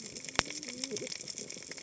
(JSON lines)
{"label": "biophony, cascading saw", "recorder": "HydroMoth"}